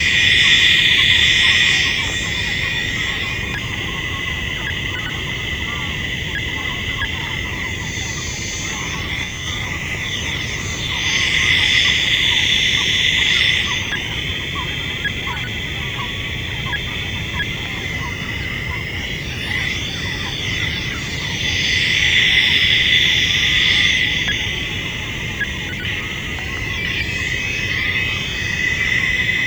Does the noise stop?
no